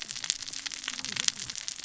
{"label": "biophony, cascading saw", "recorder": "SoundTrap 600 or HydroMoth"}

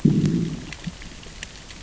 {"label": "biophony, growl", "recorder": "SoundTrap 600 or HydroMoth"}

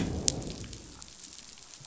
{"label": "biophony, growl", "recorder": "SoundTrap 500"}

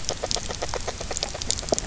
{"label": "biophony, grazing", "recorder": "SoundTrap 300"}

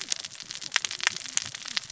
{"label": "biophony, cascading saw", "recorder": "SoundTrap 600 or HydroMoth"}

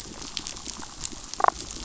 {"label": "biophony, damselfish", "recorder": "SoundTrap 500"}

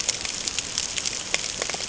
{"label": "ambient", "recorder": "HydroMoth"}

